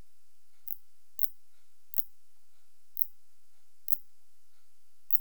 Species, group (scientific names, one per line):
Phaneroptera nana
Orthoptera